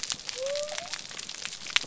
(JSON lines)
{"label": "biophony", "recorder": "SoundTrap 300"}